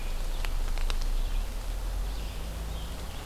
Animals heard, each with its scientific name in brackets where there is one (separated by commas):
Scarlet Tanager (Piranga olivacea)